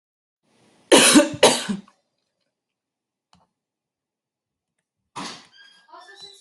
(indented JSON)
{
  "expert_labels": [
    {
      "quality": "good",
      "cough_type": "dry",
      "dyspnea": false,
      "wheezing": false,
      "stridor": false,
      "choking": false,
      "congestion": false,
      "nothing": true,
      "diagnosis": "healthy cough",
      "severity": "pseudocough/healthy cough"
    }
  ],
  "age": 42,
  "gender": "female",
  "respiratory_condition": false,
  "fever_muscle_pain": false,
  "status": "healthy"
}